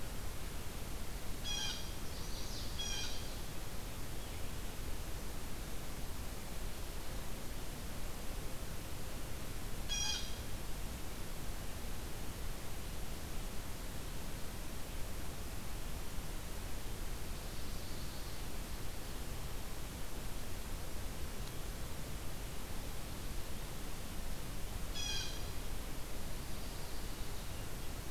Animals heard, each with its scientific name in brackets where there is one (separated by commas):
Blue Jay (Cyanocitta cristata), Chestnut-sided Warbler (Setophaga pensylvanica), Ovenbird (Seiurus aurocapilla)